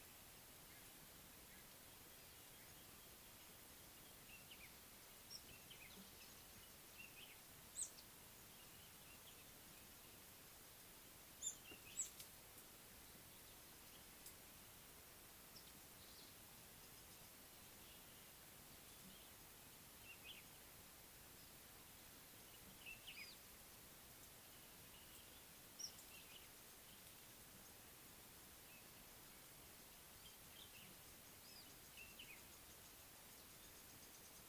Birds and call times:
Speckled Mousebird (Colius striatus): 7.9s, 11.5s, 25.9s
Common Bulbul (Pycnonotus barbatus): 22.9s

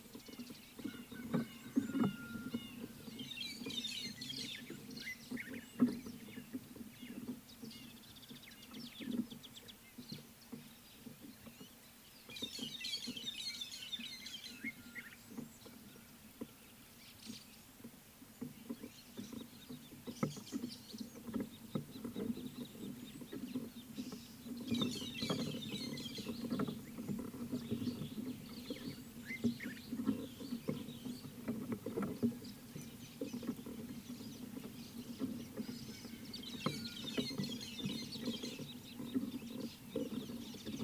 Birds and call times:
Red-fronted Barbet (Tricholaema diademata): 2.1s, 7.1s
White-headed Buffalo-Weaver (Dinemellia dinemelli): 3.9s, 13.1s, 25.5s, 37.4s
Common Bulbul (Pycnonotus barbatus): 5.4s
Scarlet-chested Sunbird (Chalcomitra senegalensis): 21.9s

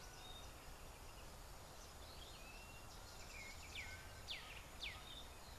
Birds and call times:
Blue-naped Mousebird (Urocolius macrourus): 2.7s
Black-backed Puffback (Dryoscopus cubla): 4.4s

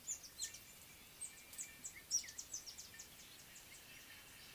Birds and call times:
Speckled Mousebird (Colius striatus): 1.3s

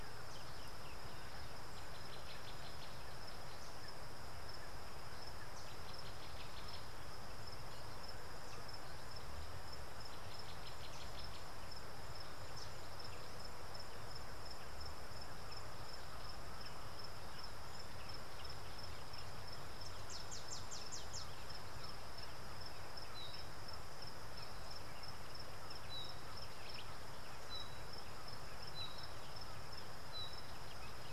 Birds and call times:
Thrush Nightingale (Luscinia luscinia): 25.9s

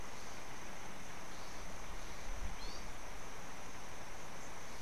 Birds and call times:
Gray-backed Camaroptera (Camaroptera brevicaudata): 2.7s

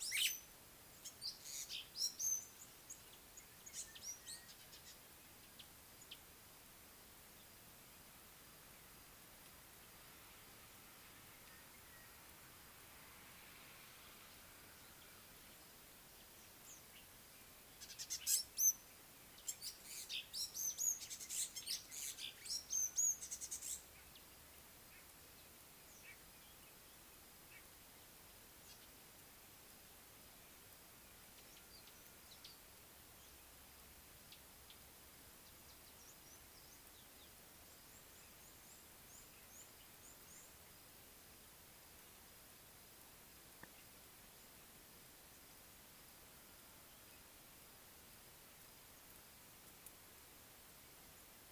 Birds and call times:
Sulphur-breasted Bushshrike (Telophorus sulfureopectus): 4.3s, 11.9s
African Gray Flycatcher (Bradornis microrhynchus): 20.9s
White-bellied Go-away-bird (Corythaixoides leucogaster): 26.1s
Red-cheeked Cordonbleu (Uraeginthus bengalus): 39.1s

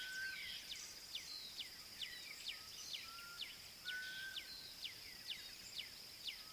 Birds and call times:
Black-backed Puffback (Dryoscopus cubla): 1.2s
Black Cuckoo (Cuculus clamosus): 4.1s

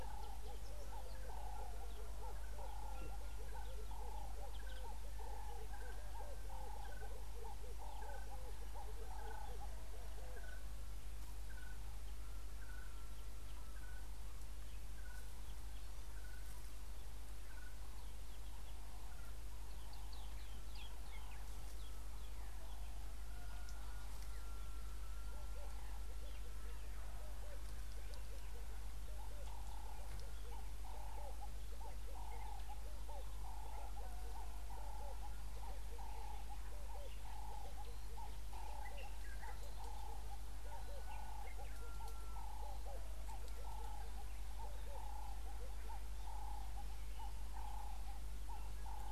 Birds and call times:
Red-eyed Dove (Streptopelia semitorquata): 3.5s, 27.5s, 41.0s
Ring-necked Dove (Streptopelia capicola): 8.0s, 31.1s, 45.2s
Red-fronted Tinkerbird (Pogoniulus pusillus): 11.7s, 15.2s
Pale White-eye (Zosterops flavilateralis): 20.4s

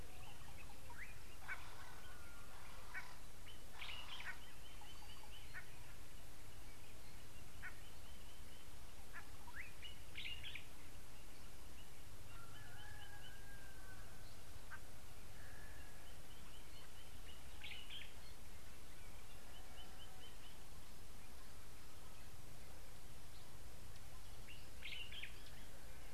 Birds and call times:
Ring-necked Dove (Streptopelia capicola): 4.0s
White-bellied Go-away-bird (Corythaixoides leucogaster): 7.6s
Common Bulbul (Pycnonotus barbatus): 10.2s, 17.7s, 25.0s

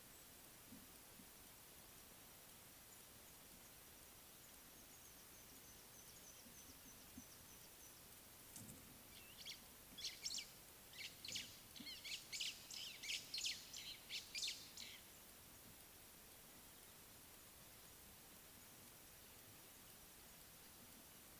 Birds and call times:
Mouse-colored Penduline-Tit (Anthoscopus musculus): 6.3s
White-browed Sparrow-Weaver (Plocepasser mahali): 12.1s

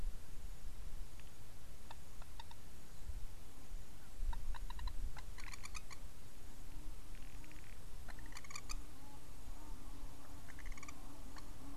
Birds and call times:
Blacksmith Lapwing (Vanellus armatus): 5.6s

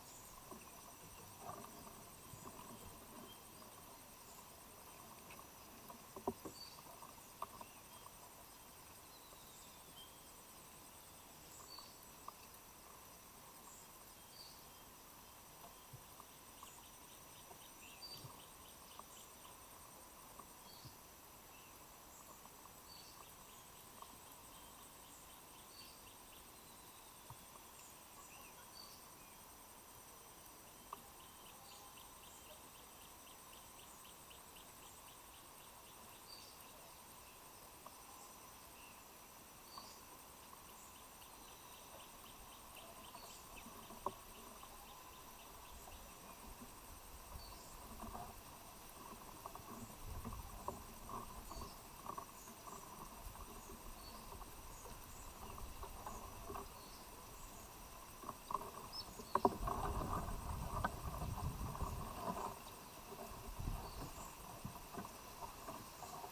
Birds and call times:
Spectacled Weaver (Ploceus ocularis): 9.4s
Gray Apalis (Apalis cinerea): 18.3s

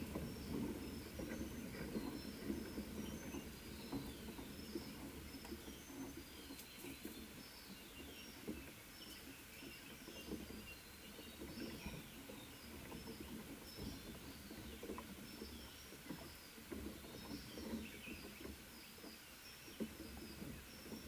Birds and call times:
Mountain Wagtail (Motacilla clara): 17.3s

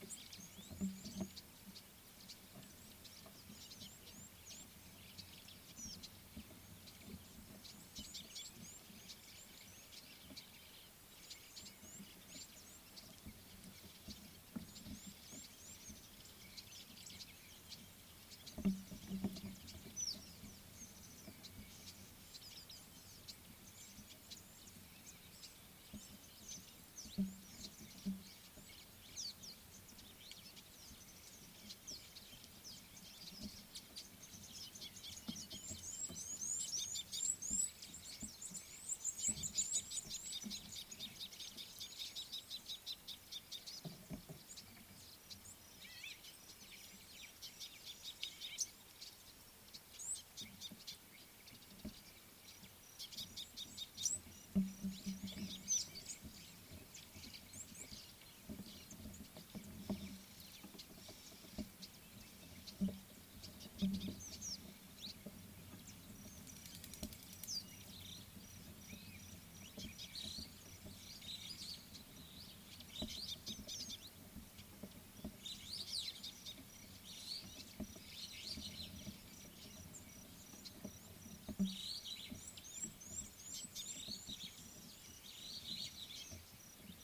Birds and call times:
Red-billed Firefinch (Lagonosticta senegala): 2.3s, 17.8s
Scarlet-chested Sunbird (Chalcomitra senegalensis): 8.2s, 35.6s, 42.6s, 48.2s, 53.6s, 63.9s, 73.5s
Red-cheeked Cordonbleu (Uraeginthus bengalus): 15.1s, 37.2s, 50.1s, 83.2s
White-fronted Bee-eater (Merops bullockoides): 46.0s, 48.5s
Superb Starling (Lamprotornis superbus): 70.3s, 81.9s

